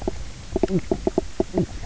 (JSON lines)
{"label": "biophony, knock croak", "recorder": "SoundTrap 300"}